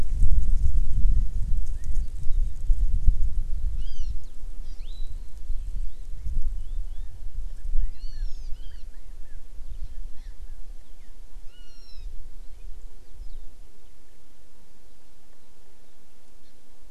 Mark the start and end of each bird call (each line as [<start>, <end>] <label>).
[3.72, 4.12] Hawaii Amakihi (Chlorodrepanis virens)
[4.62, 5.12] Hawaii Amakihi (Chlorodrepanis virens)
[5.72, 6.02] Hawaii Amakihi (Chlorodrepanis virens)
[6.82, 7.12] Hawaii Amakihi (Chlorodrepanis virens)
[7.52, 9.42] Chinese Hwamei (Garrulax canorus)
[7.92, 8.52] Hawaiian Hawk (Buteo solitarius)
[8.52, 8.82] Hawaii Amakihi (Chlorodrepanis virens)
[10.12, 10.32] Hawaii Amakihi (Chlorodrepanis virens)
[11.42, 12.12] Hawaiian Hawk (Buteo solitarius)
[16.42, 16.52] Hawaii Amakihi (Chlorodrepanis virens)